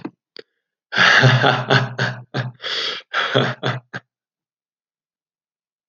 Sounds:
Laughter